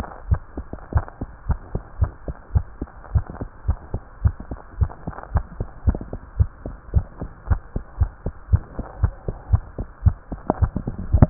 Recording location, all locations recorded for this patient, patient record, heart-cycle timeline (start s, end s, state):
tricuspid valve (TV)
aortic valve (AV)+pulmonary valve (PV)+tricuspid valve (TV)+mitral valve (MV)
#Age: Child
#Sex: Female
#Height: 95.0 cm
#Weight: 13.6 kg
#Pregnancy status: False
#Murmur: Absent
#Murmur locations: nan
#Most audible location: nan
#Systolic murmur timing: nan
#Systolic murmur shape: nan
#Systolic murmur grading: nan
#Systolic murmur pitch: nan
#Systolic murmur quality: nan
#Diastolic murmur timing: nan
#Diastolic murmur shape: nan
#Diastolic murmur grading: nan
#Diastolic murmur pitch: nan
#Diastolic murmur quality: nan
#Outcome: Abnormal
#Campaign: 2015 screening campaign
0.00	0.88	unannotated
0.88	1.04	S1
1.04	1.18	systole
1.18	1.30	S2
1.30	1.48	diastole
1.48	1.60	S1
1.60	1.73	systole
1.73	1.82	S2
1.82	1.96	diastole
1.96	2.14	S1
2.14	2.25	systole
2.25	2.36	S2
2.36	2.52	diastole
2.52	2.66	S1
2.66	2.79	systole
2.79	2.92	S2
2.92	3.12	diastole
3.12	3.26	S1
3.26	3.38	systole
3.38	3.48	S2
3.48	3.66	diastole
3.66	3.78	S1
3.78	3.91	systole
3.91	4.02	S2
4.02	4.22	diastole
4.22	4.36	S1
4.36	4.50	systole
4.50	4.58	S2
4.58	4.78	diastole
4.78	4.90	S1
4.90	5.06	systole
5.06	5.14	S2
5.14	5.32	diastole
5.32	5.44	S1
5.44	5.58	systole
5.58	5.68	S2
5.68	5.86	diastole
5.86	6.00	S1
6.00	6.12	systole
6.12	6.20	S2
6.20	6.36	diastole
6.36	6.50	S1
6.50	6.65	systole
6.65	6.76	S2
6.76	6.92	diastole
6.92	7.06	S1
7.06	7.20	systole
7.20	7.30	S2
7.30	7.48	diastole
7.48	7.62	S1
7.62	7.74	systole
7.74	7.84	S2
7.84	7.98	diastole
7.98	8.12	S1
8.12	8.25	systole
8.25	8.34	S2
8.34	8.50	diastole
8.50	8.64	S1
8.64	8.78	systole
8.78	8.84	S2
8.84	9.00	diastole
9.00	9.14	S1
9.14	9.26	systole
9.26	9.36	S2
9.36	9.52	diastole
9.52	9.66	S1
9.66	9.78	systole
9.78	9.88	S2
9.88	10.04	diastole
10.04	10.18	S1
10.18	10.30	systole
10.30	10.38	S2
10.38	11.30	unannotated